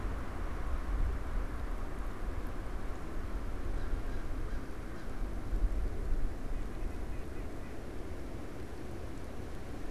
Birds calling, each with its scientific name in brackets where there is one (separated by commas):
American Crow (Corvus brachyrhynchos)